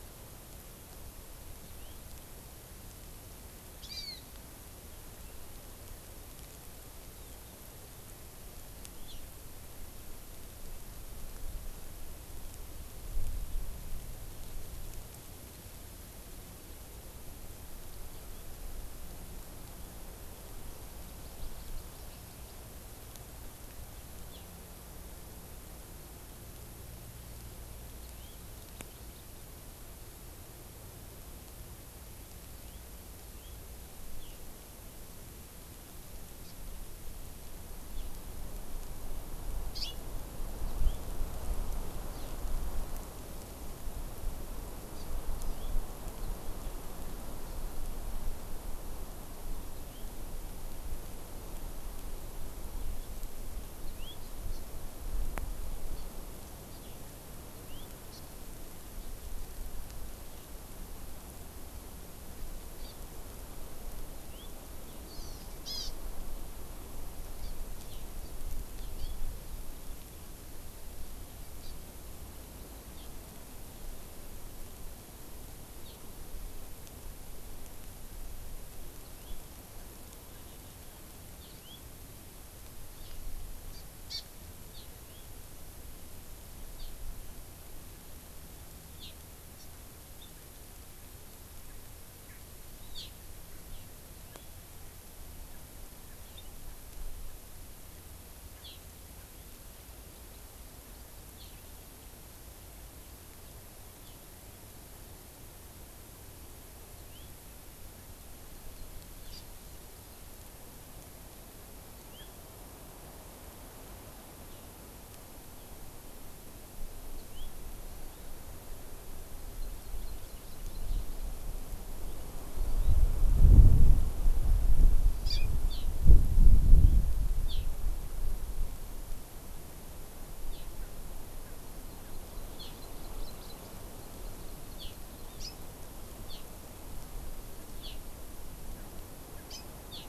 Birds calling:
House Finch (Haemorhous mexicanus), Hawaii Amakihi (Chlorodrepanis virens)

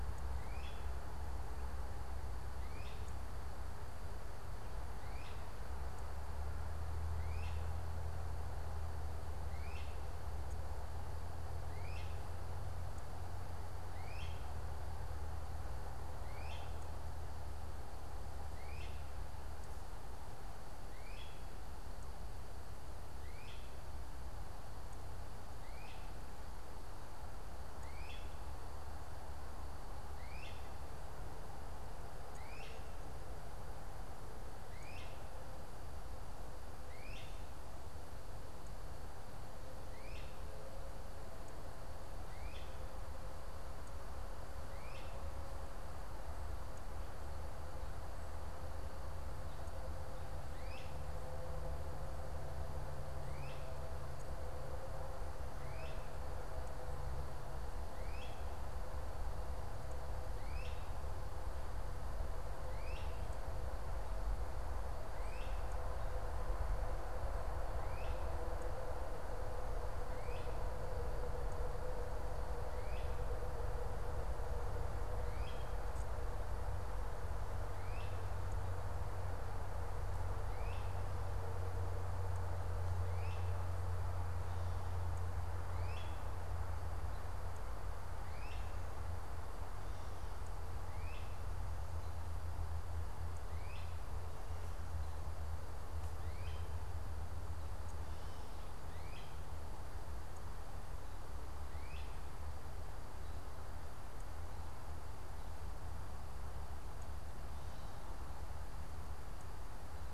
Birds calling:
Great Crested Flycatcher (Myiarchus crinitus)

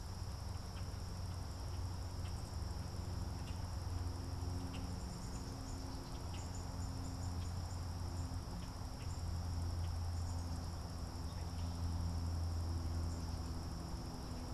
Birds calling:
Black-capped Chickadee (Poecile atricapillus), Common Grackle (Quiscalus quiscula)

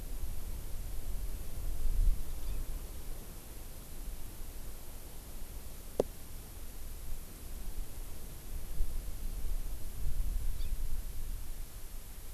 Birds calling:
Hawaii Amakihi (Chlorodrepanis virens)

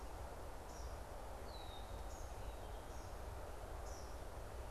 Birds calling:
Red-winged Blackbird (Agelaius phoeniceus), Eastern Kingbird (Tyrannus tyrannus)

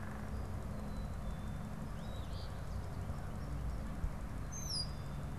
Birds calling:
Eastern Phoebe (Sayornis phoebe), Red-winged Blackbird (Agelaius phoeniceus), Black-capped Chickadee (Poecile atricapillus)

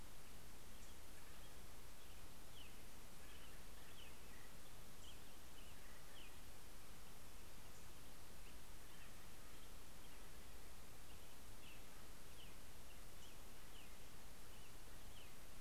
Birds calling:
Acorn Woodpecker (Melanerpes formicivorus), Black-throated Gray Warbler (Setophaga nigrescens), American Robin (Turdus migratorius)

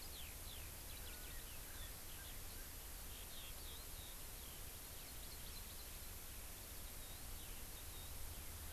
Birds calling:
Hawaii Amakihi (Chlorodrepanis virens), Eurasian Skylark (Alauda arvensis)

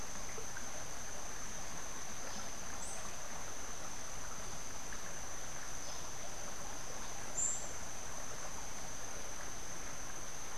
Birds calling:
Buff-throated Saltator (Saltator maximus)

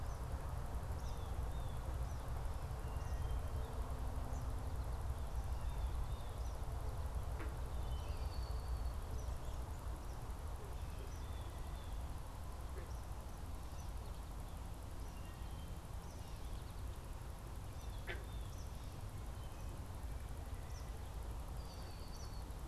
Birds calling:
Red-winged Blackbird (Agelaius phoeniceus), Blue Jay (Cyanocitta cristata), Eastern Kingbird (Tyrannus tyrannus), Wood Thrush (Hylocichla mustelina)

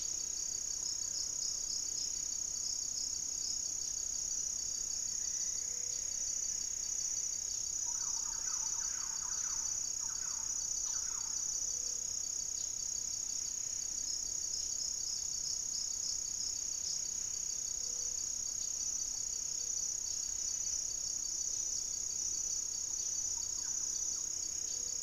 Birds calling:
unidentified bird, Mealy Parrot (Amazona farinosa), Plumbeous Antbird (Myrmelastes hyperythrus), Buff-breasted Wren (Cantorchilus leucotis), Gray-fronted Dove (Leptotila rufaxilla), Thrush-like Wren (Campylorhynchus turdinus)

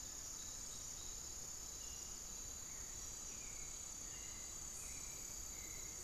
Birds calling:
Hauxwell's Thrush (Turdus hauxwelli), unidentified bird

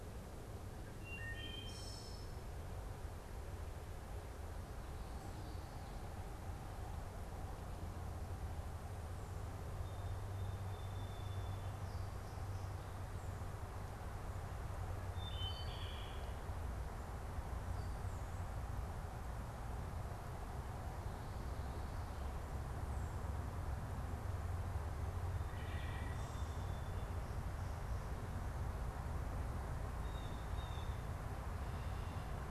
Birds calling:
Song Sparrow (Melospiza melodia), Wood Thrush (Hylocichla mustelina), Blue Jay (Cyanocitta cristata)

